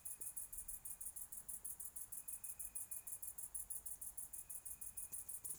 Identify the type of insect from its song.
orthopteran